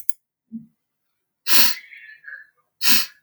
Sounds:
Sniff